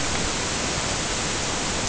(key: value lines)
label: ambient
recorder: HydroMoth